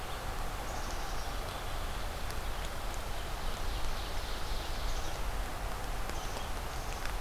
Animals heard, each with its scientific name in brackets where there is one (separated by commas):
Ovenbird (Seiurus aurocapilla), Black-capped Chickadee (Poecile atricapillus)